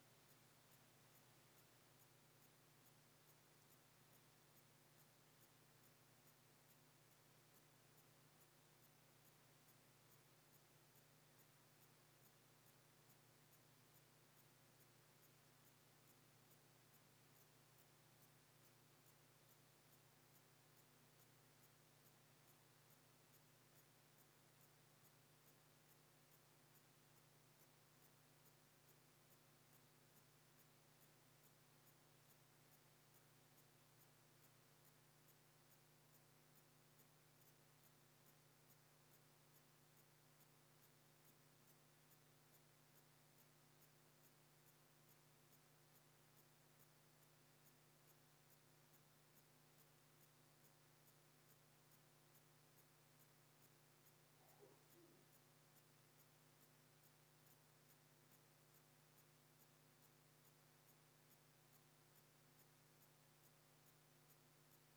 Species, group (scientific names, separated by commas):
Phaneroptera falcata, Orthoptera